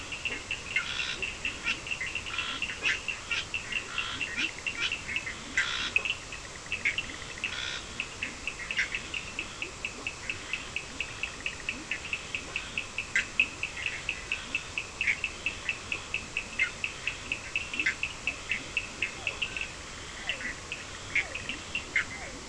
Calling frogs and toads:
Leptodactylus latrans (Leptodactylidae), Sphaenorhynchus surdus (Hylidae), Scinax perereca (Hylidae), Boana bischoffi (Hylidae), Physalaemus cuvieri (Leptodactylidae)
Atlantic Forest, 4:15am

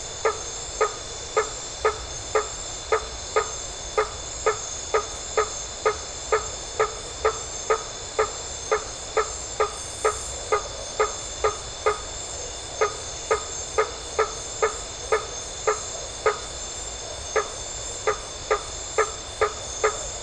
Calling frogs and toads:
Boana faber (Hylidae)
Atlantic Forest, 9:15pm

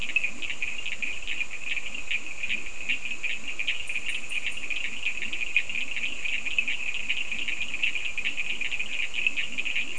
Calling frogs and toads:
Leptodactylus latrans (Leptodactylidae), Sphaenorhynchus surdus (Hylidae)
Atlantic Forest, 4:15am

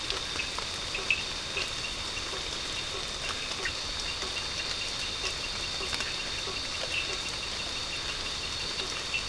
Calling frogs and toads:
Boana faber (Hylidae), Sphaenorhynchus surdus (Hylidae)
Atlantic Forest, 10:15pm

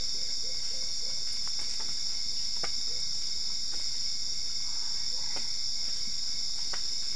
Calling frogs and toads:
Boana albopunctata (Hylidae)
Cerrado, 3:45am

